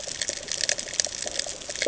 {"label": "ambient", "recorder": "HydroMoth"}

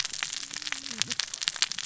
{"label": "biophony, cascading saw", "recorder": "SoundTrap 600 or HydroMoth"}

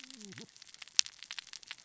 {"label": "biophony, cascading saw", "recorder": "SoundTrap 600 or HydroMoth"}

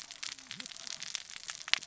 {"label": "biophony, cascading saw", "recorder": "SoundTrap 600 or HydroMoth"}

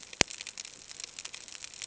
{"label": "ambient", "recorder": "HydroMoth"}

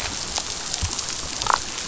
{"label": "biophony, damselfish", "recorder": "SoundTrap 500"}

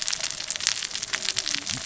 {"label": "biophony, cascading saw", "recorder": "SoundTrap 600 or HydroMoth"}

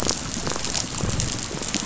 {"label": "biophony, pulse", "recorder": "SoundTrap 500"}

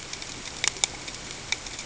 {"label": "ambient", "recorder": "HydroMoth"}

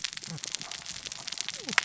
{"label": "biophony, cascading saw", "recorder": "SoundTrap 600 or HydroMoth"}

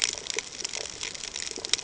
{"label": "ambient", "recorder": "HydroMoth"}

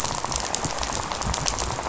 {"label": "biophony, rattle", "recorder": "SoundTrap 500"}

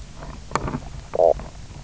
{"label": "biophony, knock croak", "recorder": "SoundTrap 300"}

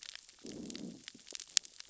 {"label": "biophony, growl", "recorder": "SoundTrap 600 or HydroMoth"}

